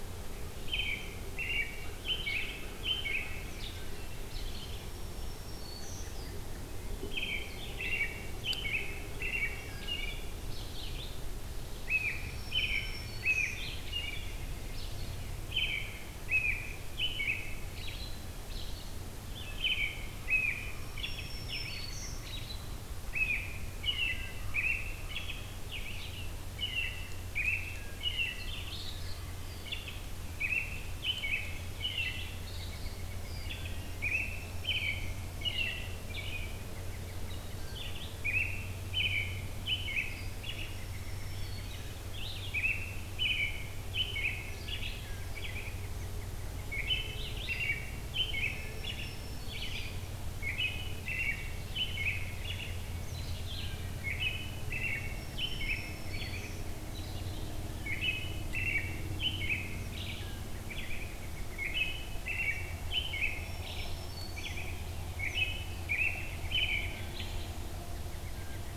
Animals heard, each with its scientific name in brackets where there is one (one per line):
Black-throated Green Warbler (Setophaga virens)
American Robin (Turdus migratorius)
Red-eyed Vireo (Vireo olivaceus)
Wood Thrush (Hylocichla mustelina)